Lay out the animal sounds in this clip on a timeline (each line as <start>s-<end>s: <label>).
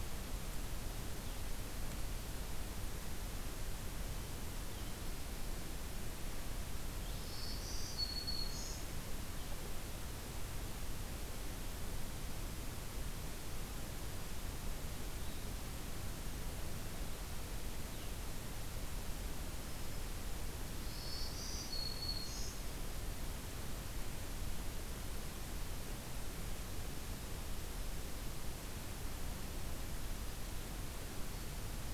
7.1s-8.9s: Black-throated Green Warbler (Setophaga virens)
20.7s-22.7s: Black-throated Green Warbler (Setophaga virens)